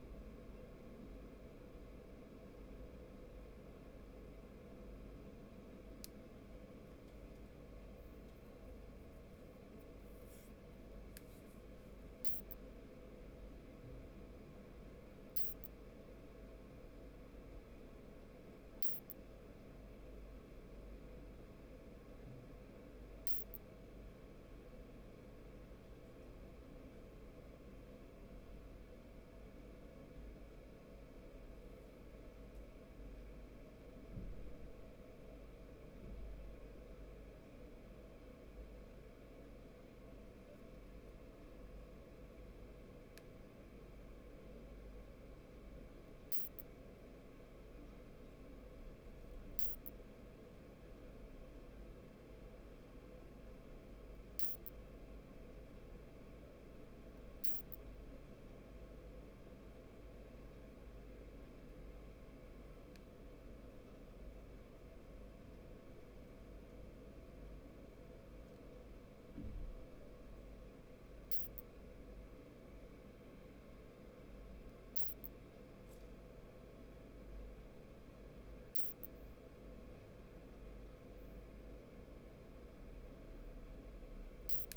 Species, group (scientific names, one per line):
Isophya modestior
Orthoptera